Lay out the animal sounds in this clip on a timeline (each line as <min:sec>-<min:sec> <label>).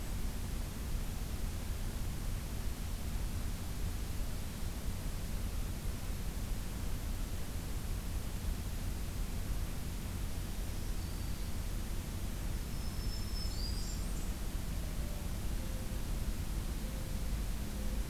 0:10.9-0:11.5 Black-throated Green Warbler (Setophaga virens)
0:12.7-0:14.1 Black-throated Green Warbler (Setophaga virens)
0:13.3-0:14.4 Blackburnian Warbler (Setophaga fusca)
0:14.8-0:18.1 Mourning Dove (Zenaida macroura)